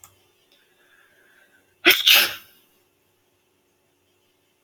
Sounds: Sneeze